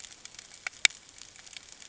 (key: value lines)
label: ambient
recorder: HydroMoth